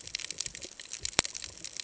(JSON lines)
{"label": "ambient", "recorder": "HydroMoth"}